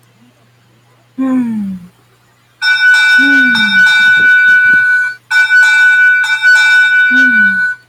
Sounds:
Sigh